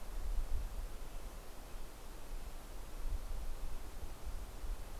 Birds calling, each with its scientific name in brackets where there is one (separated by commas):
Red-breasted Nuthatch (Sitta canadensis)